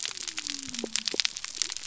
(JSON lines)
{"label": "biophony", "recorder": "SoundTrap 300"}